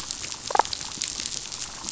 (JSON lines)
{"label": "biophony, damselfish", "recorder": "SoundTrap 500"}